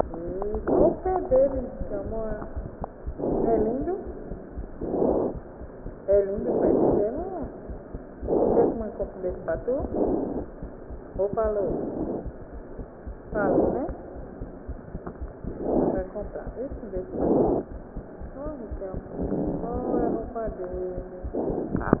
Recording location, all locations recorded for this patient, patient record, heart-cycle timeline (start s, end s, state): pulmonary valve (PV)
aortic valve (AV)+pulmonary valve (PV)+tricuspid valve (TV)+mitral valve (MV)
#Age: Child
#Sex: Male
#Height: 90.0 cm
#Weight: 14.6 kg
#Pregnancy status: False
#Murmur: Unknown
#Murmur locations: nan
#Most audible location: nan
#Systolic murmur timing: nan
#Systolic murmur shape: nan
#Systolic murmur grading: nan
#Systolic murmur pitch: nan
#Systolic murmur quality: nan
#Diastolic murmur timing: nan
#Diastolic murmur shape: nan
#Diastolic murmur grading: nan
#Diastolic murmur pitch: nan
#Diastolic murmur quality: nan
#Outcome: Abnormal
#Campaign: 2015 screening campaign
0.00	12.23	unannotated
12.23	12.35	S2
12.35	12.49	diastole
12.49	12.63	S1
12.63	12.75	systole
12.75	12.88	S2
12.88	13.03	diastole
13.03	13.15	S1
13.15	13.30	systole
13.30	13.38	S2
13.38	13.87	unannotated
13.87	13.96	S2
13.96	14.13	diastole
14.13	14.25	S1
14.25	14.37	systole
14.37	14.48	S2
14.48	14.66	diastole
14.66	14.77	S1
14.77	14.91	systole
14.91	15.01	S2
15.01	15.18	diastole
15.18	15.30	S1
15.30	15.44	systole
15.44	15.55	S2
15.55	16.21	unannotated
16.21	16.31	S1
16.31	16.43	systole
16.43	16.54	S2
16.54	16.68	diastole
16.68	16.81	S1
16.81	16.92	systole
16.92	17.02	S2
17.02	17.69	unannotated
17.69	17.81	S1
17.81	17.94	systole
17.94	18.03	S2
18.03	18.18	diastole
18.18	18.32	S1
18.32	18.44	systole
18.44	18.52	S2
18.52	18.69	diastole
18.69	18.81	S1
18.81	18.92	systole
18.92	19.01	S2
19.01	19.19	diastole
19.19	22.00	unannotated